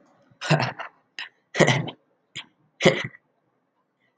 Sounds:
Laughter